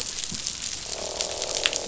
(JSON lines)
{"label": "biophony, croak", "recorder": "SoundTrap 500"}